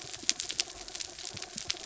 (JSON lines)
{"label": "anthrophony, mechanical", "recorder": "SoundTrap 300"}